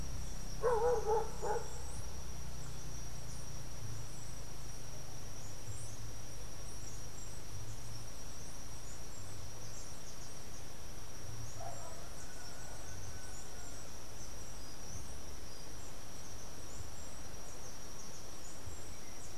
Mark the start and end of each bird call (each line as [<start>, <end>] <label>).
[0.00, 19.38] Andean Emerald (Uranomitra franciae)
[18.66, 19.38] Yellow-backed Oriole (Icterus chrysater)